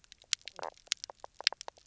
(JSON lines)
{"label": "biophony, knock croak", "recorder": "SoundTrap 300"}